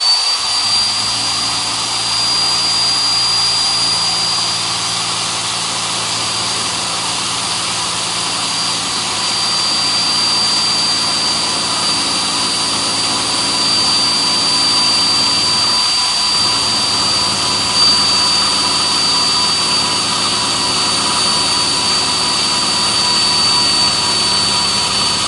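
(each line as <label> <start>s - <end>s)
A vacuum cleaner running loudly and continuously indoors. 0.0s - 25.3s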